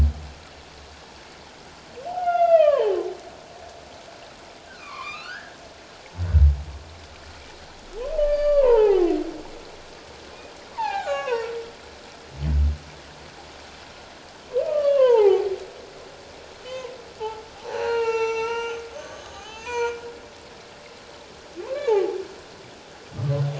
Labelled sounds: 2.1	3.0	humpback whale, 0.78 to 4.9 kHz
4.7	5.6	humpback whale, 0.91 to 3.8 kHz
8.2	9.1	humpback whale, 0.78 to 4.8 kHz
10.7	11.5	humpback whale, 0.78 to 6.8 kHz
14.7	15.5	humpback whale, 0.78 to 3.1 kHz
16.6	16.9	humpback whale, 2.9 to 3.2 kHz
17.6	20.0	humpback whale, 0.78 to 6.5 kHz
21.6	22.2	humpback whale, 0.78 to 1.2 kHz

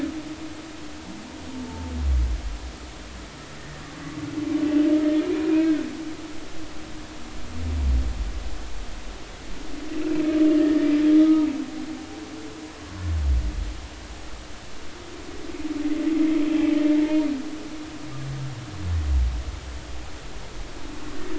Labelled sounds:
1.6	1.9	humpback whale, 0.83 to 0.93 kHz
5.5	5.8	humpback whale, 1.4 to 2.6 kHz
10.6	11.5	humpback whale, 1.2 to 1.9 kHz

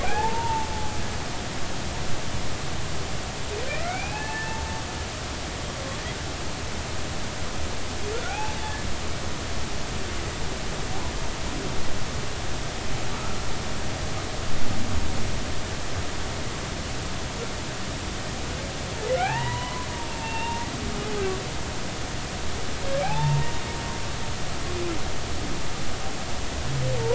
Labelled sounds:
0.0	0.7	humpback whale, 0.80 to 1.8 kHz
3.7	4.6	humpback whale, 0.80 to 2.7 kHz
8.3	8.5	humpback whale, 0.80 to 2.7 kHz
13.1	13.4	humpback whale, 1.1 to 1.4 kHz
19.1	19.9	humpback whale, 0.80 to 2.9 kHz
20.1	20.7	humpback whale, 0.83 to 3.8 kHz
23.0	23.5	humpback whale, 0.80 to 1.0 kHz

